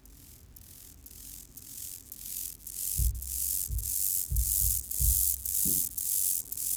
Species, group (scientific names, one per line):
Chorthippus mollis
Orthoptera